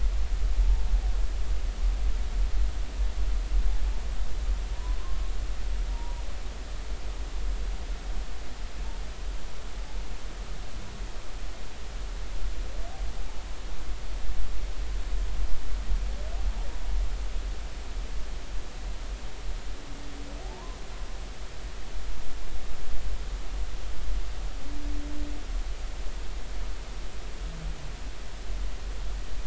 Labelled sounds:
5.9	6.2	humpback whale, 0.90 to 1.0 kHz
20.4	20.8	humpback whale, 0.80 to 1.1 kHz

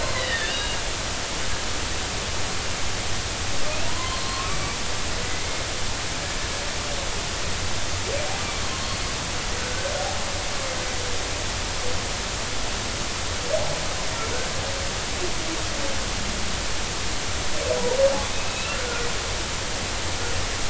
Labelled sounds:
0.0	0.8	humpback whale, 1.5 to 4.3 kHz
3.9	4.6	humpback whale, 0.90 to 1.2 kHz
5.2	5.6	humpback whale, 2.0 to 2.2 kHz
18.5	20.1	humpback whale, 1.3 to 2.8 kHz

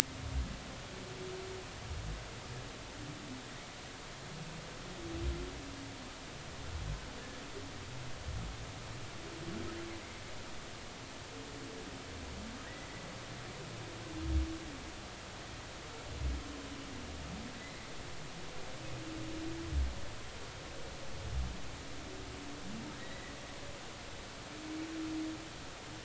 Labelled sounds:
17.5	17.8	humpback whale, 1.9 to 4.1 kHz
23.0	24.3	humpback whale, 1.8 to 4.1 kHz

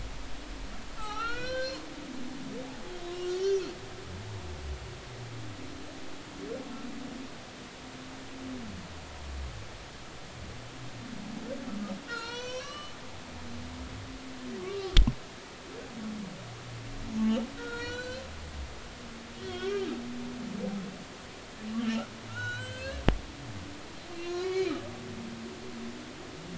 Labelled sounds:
1.0	1.8	humpback whale, 0.80 to 5.9 kHz
3.4	3.7	humpback whale, 5.6 to 6.0 kHz
12.1	12.9	humpback whale, 0.86 to 6.4 kHz
14.6	15.0	humpback whale, 1.1 to 1.4 kHz
17.6	18.2	humpback whale, 1.3 to 7.0 kHz
19.4	19.8	humpback whale, 1.1 to 3.5 kHz
22.3	23.0	humpback whale, 1.3 to 4.4 kHz
24.1	24.8	humpback whale, 0.99 to 4.3 kHz

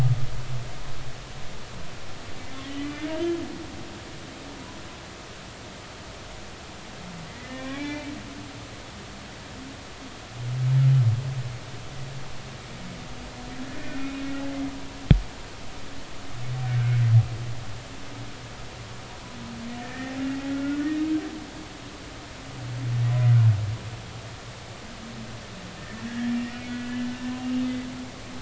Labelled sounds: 2.6	3.4	humpback whale, 1.5 to 3.2 kHz
7.3	8.1	humpback whale, 0.80 to 2.5 kHz
13.8	14.2	humpback whale, 1.3 to 2.5 kHz
16.6	17.0	humpback whale, 1.4 to 1.6 kHz
19.8	20.9	humpback whale, 1.3 to 1.9 kHz
26.1	26.9	humpback whale, 1.4 to 2.0 kHz
27.4	27.7	humpback whale, 2.8 to 2.9 kHz

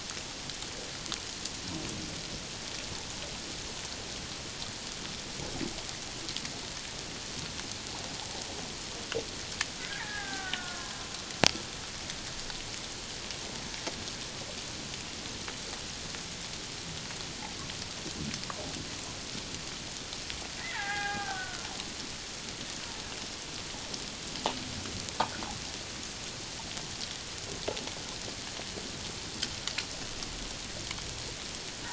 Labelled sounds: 9.8	11.0	killer whale, Bigg's (transient), 1.0 to 2.2 kHz
20.6	21.7	killer whale, Bigg's (transient), 0.78 to 2.1 kHz

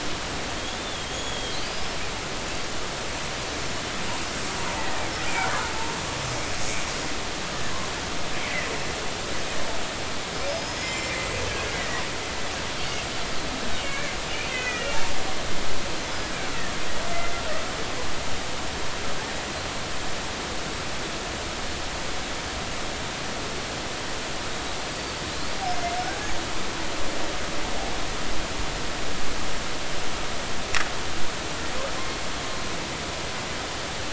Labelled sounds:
0.8	1.9	killer whale, Bigg's (transient), 3.1 to 6.8 kHz
8.4	8.7	killer whale, Bigg's (transient), 1.8 to 2.4 kHz
10.5	11.3	killer whale, Bigg's (transient), 1.7 to 5.2 kHz
11.7	12.0	killer whale, Bigg's (transient), 1.8 to 2.1 kHz
13.8	15.1	killer whale, Bigg's (transient), 1.6 to 2.9 kHz
17.1	17.3	killer whale, Bigg's (transient), 2.0 to 2.1 kHz

